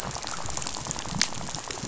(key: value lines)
label: biophony, rattle
recorder: SoundTrap 500